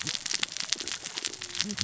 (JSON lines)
{"label": "biophony, cascading saw", "recorder": "SoundTrap 600 or HydroMoth"}